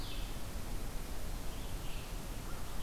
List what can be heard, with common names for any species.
Red-eyed Vireo